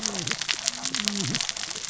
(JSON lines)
{"label": "biophony, cascading saw", "recorder": "SoundTrap 600 or HydroMoth"}